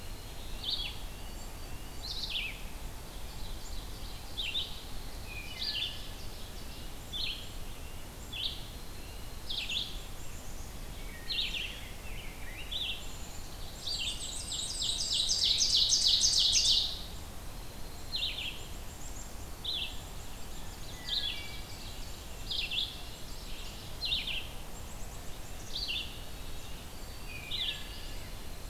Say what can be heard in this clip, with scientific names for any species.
Sitta canadensis, Vireo olivaceus, Seiurus aurocapilla, Hylocichla mustelina, Poecile atricapillus, Mniotilta varia